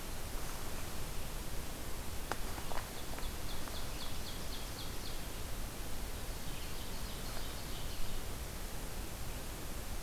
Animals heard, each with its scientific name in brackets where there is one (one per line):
Ovenbird (Seiurus aurocapilla)